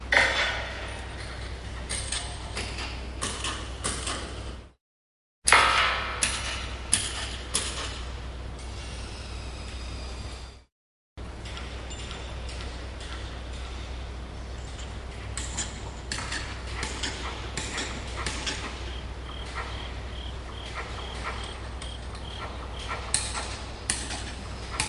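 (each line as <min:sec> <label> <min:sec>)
0:00.0 Metal clanks repeatedly. 0:04.7
0:06.1 An electric drill works briefly. 0:06.5
0:06.6 Metal clanks repeatedly. 0:08.8
0:09.1 An electric drill repeats. 0:10.7
0:19.4 Crickets chirping in the distance, repeating. 0:22.9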